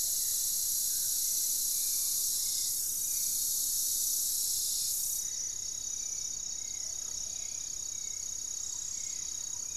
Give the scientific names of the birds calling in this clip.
Turdus hauxwelli, unidentified bird, Lipaugus vociferans, Patagioenas plumbea, Campylorhynchus turdinus, Formicarius analis